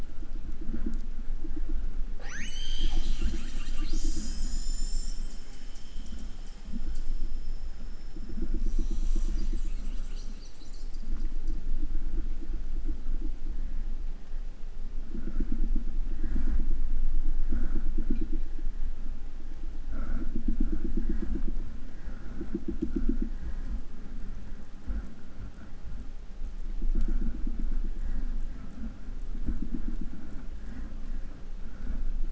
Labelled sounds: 1.9	5.4	killer whale, 0.21 to 8.0 kHz
8.5	11.6	killer whale, southern resident, call S10, 0.39 to 8.0 kHz
18.0	18.5	killer whale, 1.2 to 5.2 kHz

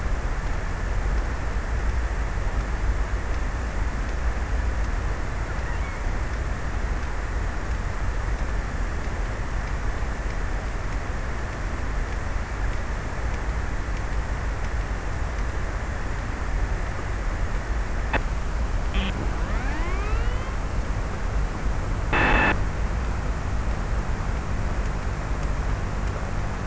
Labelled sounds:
4.6	7.1	killer whale, offshore, 0.89 to 2.7 kHz

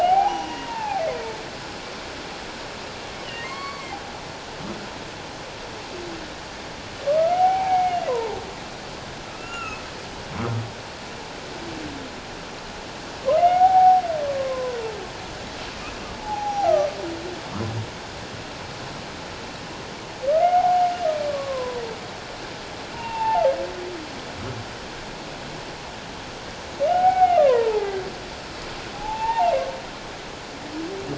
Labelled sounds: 0.0	1.0	humpback whale, 0.78 to 3.0 kHz
3.4	4.0	humpback whale, 0.97 to 4.6 kHz
7.1	8.4	humpback whale, 0.78 to 2.3 kHz
9.3	9.8	humpback whale, 1.2 to 2.9 kHz
13.4	14.8	humpback whale, 0.78 to 2.2 kHz
16.1	16.7	humpback whale, 0.78 to 5.8 kHz
20.3	21.8	humpback whale, 0.78 to 2.2 kHz
22.9	23.4	humpback whale, 0.78 to 2.8 kHz
26.9	27.9	humpback whale, 0.78 to 2.3 kHz
28.9	29.5	humpback whale, 0.78 to 2.8 kHz

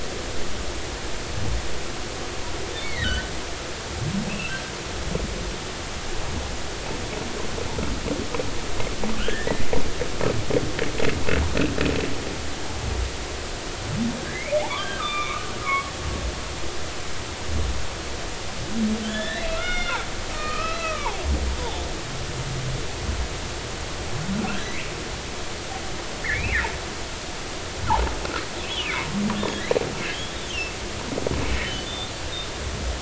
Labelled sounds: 2.8	3.3	humpback whale, 1.4 to 2.3 kHz
4.3	4.6	humpback whale, 2.5 to 2.9 kHz
9.2	9.6	humpback whale, 1.3 to 2.1 kHz
14.3	16.0	humpback whale, 0.93 to 3.7 kHz
19.1	20.0	humpback whale, 1.3 to 5.8 kHz
20.3	21.8	humpback whale, 0.80 to 3.6 kHz
26.2	26.6	humpback whale, 1.6 to 2.9 kHz
30.1	30.4	humpback whale, 3.0 to 3.5 kHz
31.6	32.1	humpback whale, 2.9 to 3.8 kHz

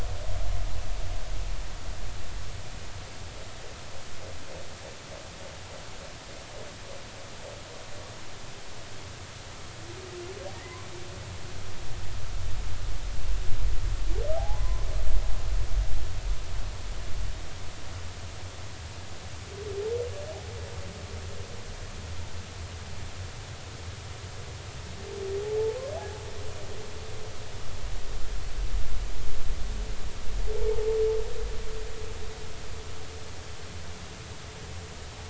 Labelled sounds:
10.5	10.8	humpback whale, 1.8 to 2.1 kHz
14.4	14.9	humpback whale, 0.80 to 1.1 kHz

